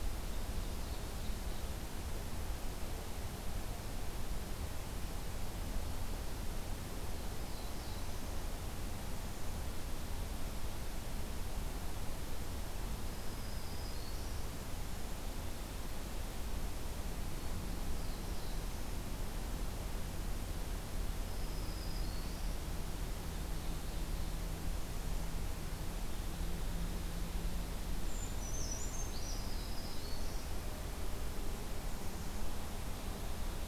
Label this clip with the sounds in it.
Ovenbird, Black-throated Blue Warbler, Black-throated Green Warbler, Brown Creeper